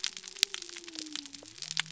{"label": "biophony", "recorder": "SoundTrap 300"}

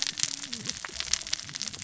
{"label": "biophony, cascading saw", "recorder": "SoundTrap 600 or HydroMoth"}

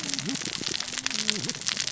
{"label": "biophony, cascading saw", "recorder": "SoundTrap 600 or HydroMoth"}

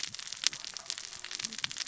{"label": "biophony, cascading saw", "recorder": "SoundTrap 600 or HydroMoth"}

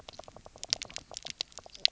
{"label": "biophony, knock croak", "recorder": "SoundTrap 300"}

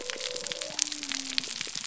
{"label": "biophony", "recorder": "SoundTrap 300"}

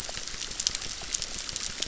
{"label": "biophony, crackle", "recorder": "SoundTrap 600"}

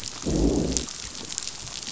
{"label": "biophony, growl", "recorder": "SoundTrap 500"}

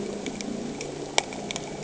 {"label": "anthrophony, boat engine", "recorder": "HydroMoth"}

